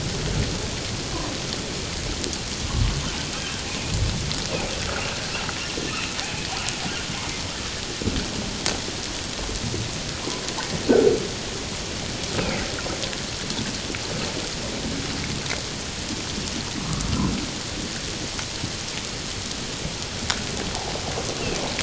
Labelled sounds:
5.9	6.1	humpback whale, 2.4 to 2.8 kHz
12.4	12.7	humpback whale, 1.9 to 2.7 kHz

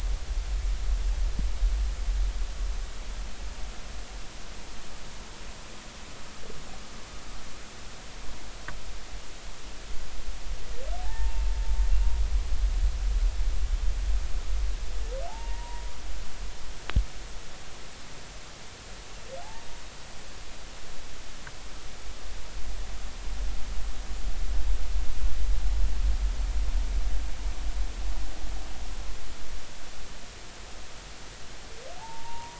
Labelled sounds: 11.0	11.4	humpback whale, 0.80 to 1.9 kHz
15.3	15.8	humpback whale, 0.80 to 1.9 kHz
19.4	19.7	humpback whale, 0.80 to 0.96 kHz
32.0	32.5	humpback whale, 0.80 to 1.1 kHz

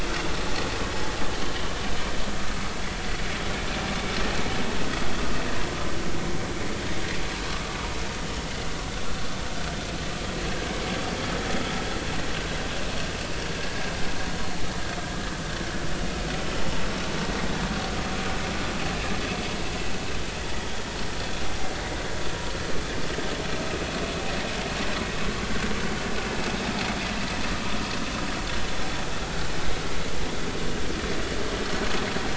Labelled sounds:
13.5	13.9	vessel noise, 1.6 to 1.8 kHz

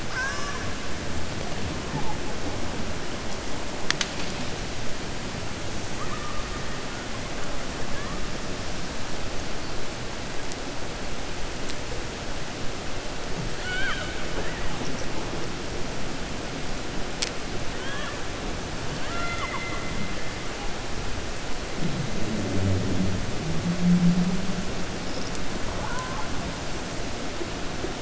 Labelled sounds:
0.0	0.7	killer whale, 1.0 to 2.6 kHz
13.5	14.2	killer whale, 0.75 to 4.5 kHz
17.7	18.2	killer whale, 1.0 to 3.4 kHz
18.9	19.9	killer whale, 0.70 to 4.1 kHz

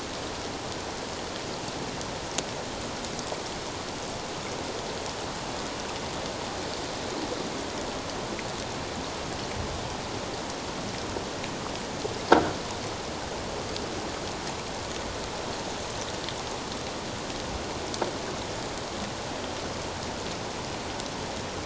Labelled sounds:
12.3	12.6	croaking sound likely from a nearby submerged object, 1.3 to 1.7 kHz

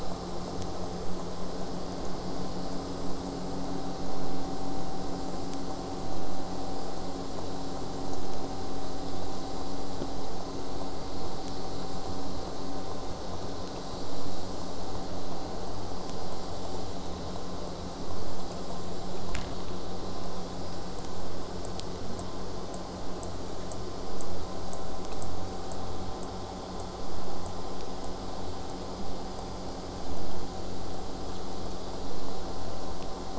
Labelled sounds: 22.1	25.9	killer whale, southern resident, J pod, 7.9 to 8.0 kHz

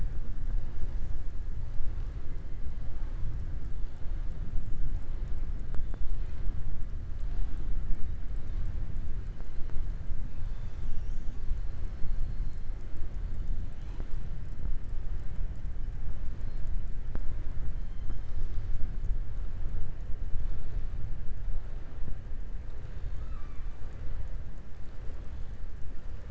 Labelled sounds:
22.8	23.7	killer whale, southern resident, 1.1 to 4.5 kHz

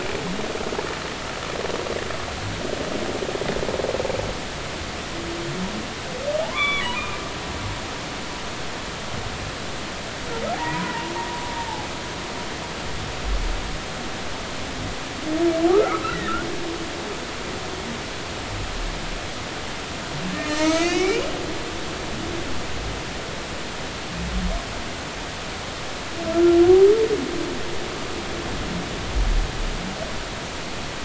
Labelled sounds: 6.4	7.2	humpback whale, 0.80 to 3.6 kHz
10.5	11.1	humpback whale, 0.80 to 1.1 kHz
11.6	11.9	humpback whale, 0.80 to 0.96 kHz
15.7	16.5	humpback whale, 1.1 to 4.1 kHz
20.4	21.2	humpback whale, 0.90 to 3.0 kHz
26.3	26.6	humpback whale, 1.3 to 1.4 kHz

